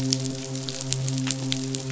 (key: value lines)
label: biophony, midshipman
recorder: SoundTrap 500